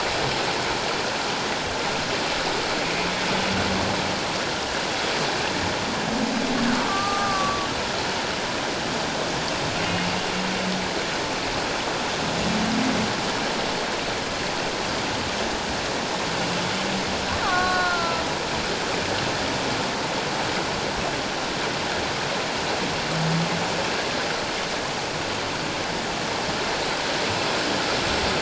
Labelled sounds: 6.9	7.7	killer whale, Bigg's (transient), 1.1 to 1.2 kHz
17.4	18.2	killer whale, Bigg's (transient), 0.94 to 4.3 kHz

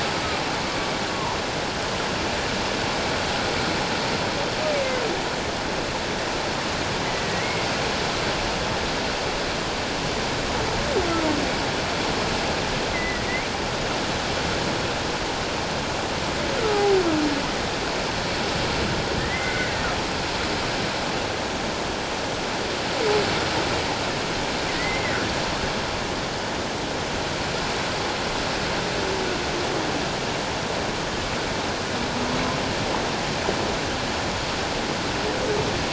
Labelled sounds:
0.7	1.4	humpback whale, 0.84 to 1.2 kHz
7.1	7.7	humpback whale, 1.9 to 2.3 kHz
12.9	13.2	humpback whale, 1.8 to 2.1 kHz
16.7	17.0	humpback whale, 0.78 to 0.88 kHz
19.2	19.9	humpback whale, 1.4 to 2.2 kHz
24.7	25.2	humpback whale, 1.8 to 2.2 kHz

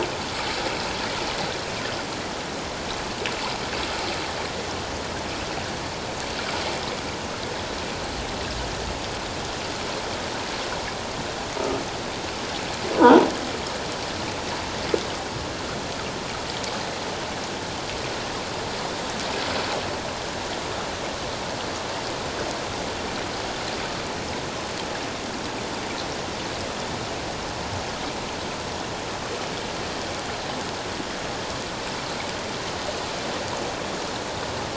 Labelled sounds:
13.0	13.2	croaking sound likely from a nearby submerged object, 0.84 to 1.0 kHz

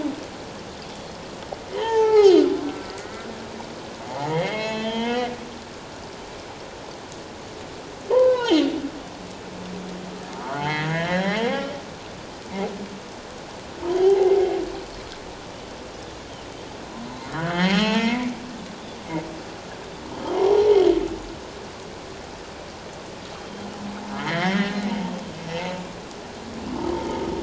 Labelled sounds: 1.7	2.4	humpback whale, 0.78 to 3.3 kHz
4.1	5.3	humpback whale, 0.78 to 5.6 kHz
8.1	8.7	humpback whale, 0.78 to 3.3 kHz
10.6	11.5	humpback whale, 0.78 to 4.2 kHz
14.0	14.3	humpback whale, 0.78 to 0.91 kHz
17.4	18.4	humpback whale, 0.88 to 5.7 kHz
20.3	20.7	humpback whale, 0.78 to 0.97 kHz
23.4	23.7	Pacific white-sided dolphin, 3.1 to 3.2 kHz
24.2	24.8	humpback whale, 1.5 to 3.7 kHz

